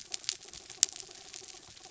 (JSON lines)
{"label": "anthrophony, mechanical", "recorder": "SoundTrap 300"}